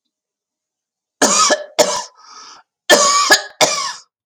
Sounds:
Cough